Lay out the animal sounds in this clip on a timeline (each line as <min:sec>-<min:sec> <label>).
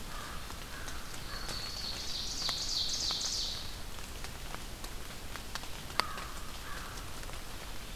0:00.0-0:01.6 American Crow (Corvus brachyrhynchos)
0:01.0-0:02.7 Black-throated Green Warbler (Setophaga virens)
0:01.1-0:03.6 Ovenbird (Seiurus aurocapilla)
0:05.9-0:07.0 American Crow (Corvus brachyrhynchos)